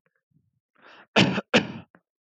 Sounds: Cough